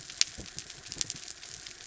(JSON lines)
{"label": "anthrophony, mechanical", "recorder": "SoundTrap 300"}